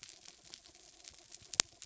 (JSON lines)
{"label": "anthrophony, mechanical", "recorder": "SoundTrap 300"}